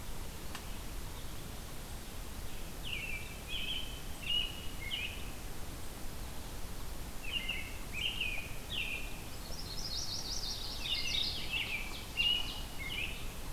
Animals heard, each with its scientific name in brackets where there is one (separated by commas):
American Robin (Turdus migratorius), Ovenbird (Seiurus aurocapilla), Yellow-rumped Warbler (Setophaga coronata), Mourning Warbler (Geothlypis philadelphia)